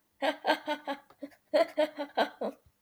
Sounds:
Laughter